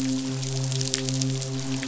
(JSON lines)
{"label": "biophony, midshipman", "recorder": "SoundTrap 500"}